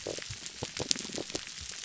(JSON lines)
{"label": "biophony, pulse", "recorder": "SoundTrap 300"}